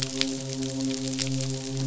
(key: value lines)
label: biophony, midshipman
recorder: SoundTrap 500